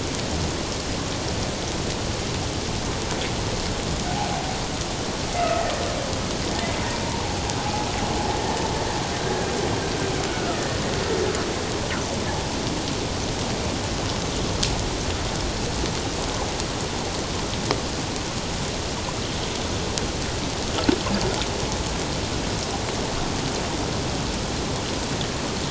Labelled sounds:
5.4	5.6	humpback whale, 1.2 to 1.4 kHz
10.3	10.8	humpback whale, 1.2 to 1.9 kHz

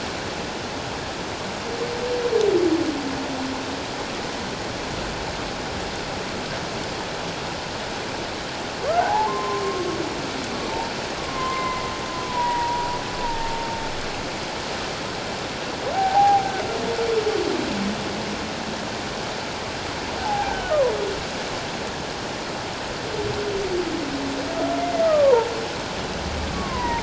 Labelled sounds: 8.9	10.0	humpback whale, 0.78 to 1.6 kHz
11.2	11.8	humpback whale, 0.94 to 2.3 kHz
12.3	13.6	humpback whale, 0.88 to 2.0 kHz
15.9	16.5	humpback whale, 0.78 to 0.94 kHz
20.2	20.7	humpback whale, 0.78 to 1.7 kHz
25.0	25.5	humpback whale, 0.81 to 1.3 kHz
26.5	27.0	humpback whale, 0.88 to 2.2 kHz

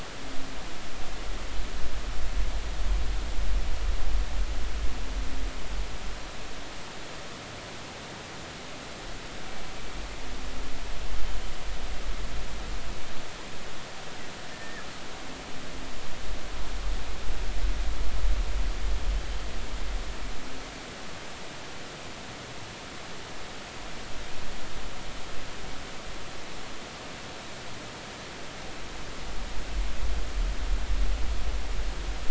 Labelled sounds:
14.5	14.9	killer whale, northern resident, G clan, GG subclan, 1.6 to 1.9 kHz

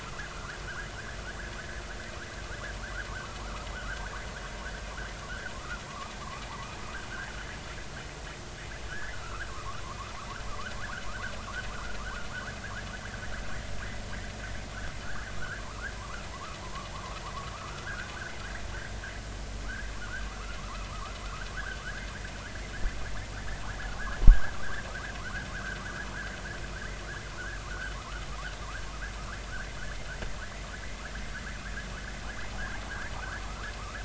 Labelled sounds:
3.4	4.2	vessel noise, 0.90 to 1.8 kHz
5.9	6.8	vessel noise, 0.80 to 1.3 kHz
8.9	9.8	vessel noise, 0.93 to 2.1 kHz
10.5	10.8	vessel noise, 0.99 to 1.7 kHz
15.0	16.6	vessel noise, 0.83 to 1.9 kHz
16.9	18.1	vessel noise, 0.80 to 1.7 kHz
19.6	21.2	vessel noise, 0.96 to 1.8 kHz
21.8	22.1	vessel noise, 1.1 to 1.8 kHz
24.3	24.5	vessel noise, 1.4 to 1.7 kHz
25.5	25.8	vessel noise, 1.1 to 1.7 kHz
33.4	34.0	vessel noise, 0.99 to 1.8 kHz

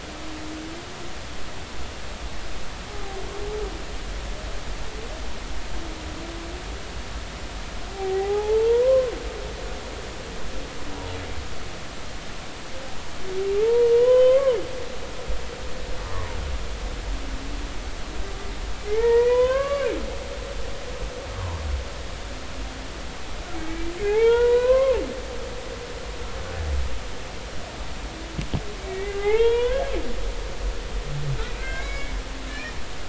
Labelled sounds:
7.9	9.1	humpback whale, 0.80 to 1.1 kHz
13.6	14.6	humpback whale, 0.80 to 3.2 kHz
18.9	19.9	humpback whale, 0.83 to 3.7 kHz
23.5	25.0	humpback whale, 0.80 to 3.9 kHz
28.8	29.8	humpback whale, 0.80 to 3.3 kHz
31.6	32.1	humpback whale, 1.5 to 6.8 kHz
32.5	32.8	humpback whale, 1.7 to 2.5 kHz

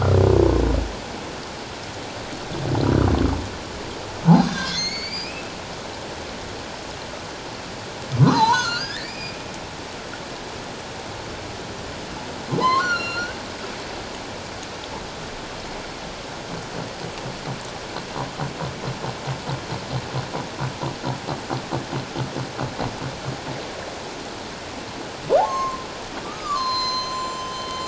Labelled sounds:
4.5	5.5	humpback whale, 1.5 to 7.0 kHz
8.2	9.4	humpback whale, 0.81 to 6.5 kHz
12.6	13.4	humpback whale, 0.84 to 7.0 kHz
25.4	27.8	humpback whale, 0.78 to 7.3 kHz

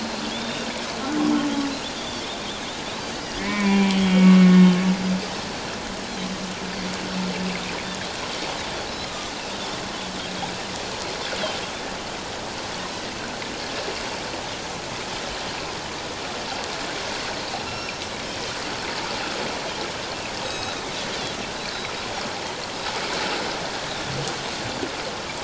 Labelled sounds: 0.3	0.7	Pacific white-sided dolphin, 3.2 to 3.8 kHz
2.0	2.3	Pacific white-sided dolphin, 3.2 to 3.7 kHz
3.4	4.7	humpback whale, 0.94 to 3.4 kHz
8.9	9.3	Pacific white-sided dolphin, 1.2 to 4.2 kHz
17.7	18.0	humpback whale, 2.3 to 5.5 kHz
20.4	20.8	Pacific white-sided dolphin, 2.5 to 7.8 kHz
21.6	21.9	Pacific white-sided dolphin, 3.8 to 4.0 kHz

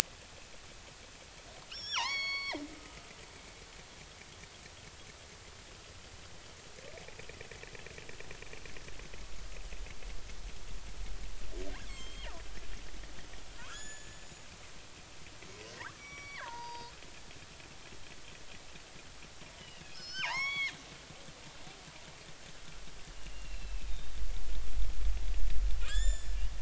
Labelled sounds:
1.7	3.1	killer whale, northern resident, G clan, 0.80 to 6.8 kHz
11.8	12.3	killer whale, northern resident, G clan, 2.0 to 7.7 kHz
13.6	14.4	killer whale, northern resident, G clan, 0.90 to 7.0 kHz
16.0	16.9	killer whale, northern resident, G clan, 0.83 to 6.2 kHz
19.6	20.7	killer whale, northern resident, G clan, 0.80 to 6.7 kHz
23.1	24.0	killer whale, northern resident, G clan, 2.4 to 4.1 kHz
25.8	26.4	killer whale, northern resident, G clan, 1.2 to 7.4 kHz

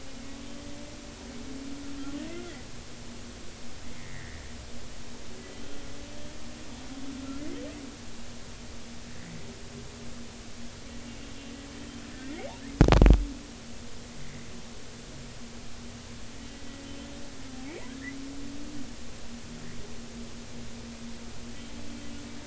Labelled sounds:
2.3	2.6	humpback whale, 1.8 to 2.1 kHz
4.0	4.4	humpback whale, 1.7 to 2.3 kHz
12.1	12.4	humpback whale, 1.7 to 2.0 kHz
17.9	18.2	humpback whale, 1.5 to 2.2 kHz

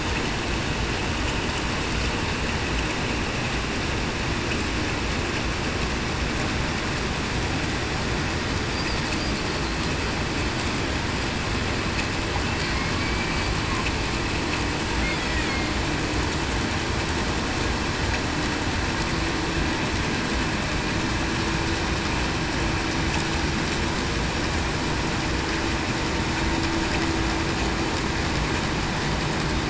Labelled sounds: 13.0	13.3	killer whale, Bigg's (transient), 2.2 to 2.3 kHz

